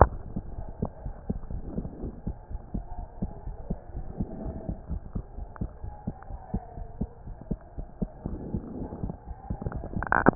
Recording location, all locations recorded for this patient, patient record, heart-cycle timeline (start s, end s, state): pulmonary valve (PV)
aortic valve (AV)+pulmonary valve (PV)+tricuspid valve (TV)+mitral valve (MV)
#Age: Child
#Sex: Female
#Height: 113.0 cm
#Weight: 17.3 kg
#Pregnancy status: False
#Murmur: Absent
#Murmur locations: nan
#Most audible location: nan
#Systolic murmur timing: nan
#Systolic murmur shape: nan
#Systolic murmur grading: nan
#Systolic murmur pitch: nan
#Systolic murmur quality: nan
#Diastolic murmur timing: nan
#Diastolic murmur shape: nan
#Diastolic murmur grading: nan
#Diastolic murmur pitch: nan
#Diastolic murmur quality: nan
#Outcome: Normal
#Campaign: 2015 screening campaign
0.00	0.20	unannotated
0.20	0.32	systole
0.32	0.42	S2
0.42	0.56	diastole
0.56	0.70	S1
0.70	0.80	systole
0.80	0.90	S2
0.90	1.04	diastole
1.04	1.14	S1
1.14	1.28	systole
1.28	1.40	S2
1.40	1.54	diastole
1.54	1.66	S1
1.66	1.76	systole
1.76	1.90	S2
1.90	2.02	diastole
2.02	2.14	S1
2.14	2.24	systole
2.24	2.35	S2
2.35	2.51	diastole
2.51	2.60	S1
2.60	2.72	systole
2.72	2.80	S2
2.80	2.96	diastole
2.96	3.06	S1
3.06	3.20	systole
3.20	3.30	S2
3.30	3.46	diastole
3.46	3.56	S1
3.56	3.68	systole
3.68	3.78	S2
3.78	3.96	diastole
3.96	4.08	S1
4.08	4.18	systole
4.18	4.28	S2
4.28	4.40	diastole
4.40	4.54	S1
4.54	4.66	systole
4.66	4.76	S2
4.76	4.89	diastole
4.89	5.02	S1
5.02	5.12	systole
5.12	5.24	S2
5.24	5.38	diastole
5.38	5.48	S1
5.48	5.62	systole
5.62	5.70	S2
5.70	5.84	diastole
5.84	5.94	S1
5.94	6.06	systole
6.06	6.16	S2
6.16	6.32	diastole
6.32	6.40	S1
6.40	6.52	systole
6.52	6.62	S2
6.62	6.78	diastole
6.78	6.88	S1
6.88	6.98	systole
6.98	7.10	S2
7.10	7.26	diastole
7.26	7.36	S1
7.36	7.48	systole
7.48	7.58	S2
7.58	7.76	diastole
7.76	7.86	S1
7.86	8.00	systole
8.00	8.10	S2
8.10	8.24	diastole
8.24	10.35	unannotated